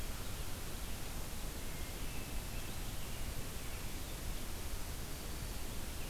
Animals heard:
forest ambience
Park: Marsh-Billings-Rockefeller National Historical Park